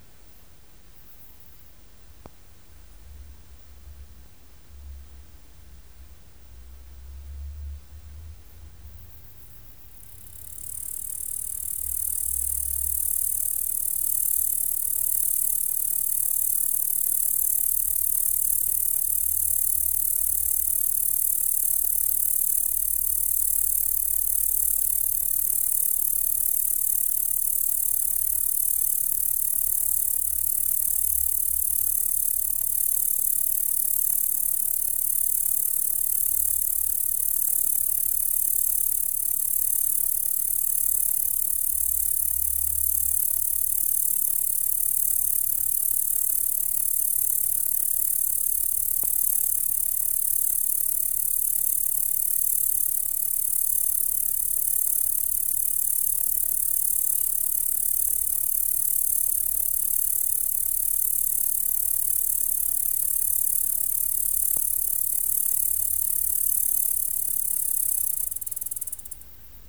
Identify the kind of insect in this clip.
orthopteran